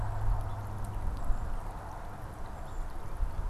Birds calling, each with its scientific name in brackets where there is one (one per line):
Golden-crowned Kinglet (Regulus satrapa)